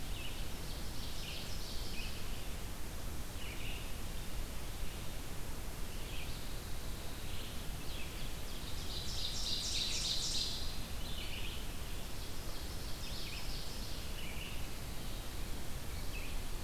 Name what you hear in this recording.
Red-eyed Vireo, Ovenbird